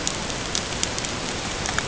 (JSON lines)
{"label": "ambient", "recorder": "HydroMoth"}